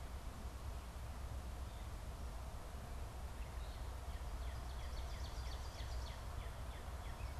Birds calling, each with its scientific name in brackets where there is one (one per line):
Northern Cardinal (Cardinalis cardinalis)
Ovenbird (Seiurus aurocapilla)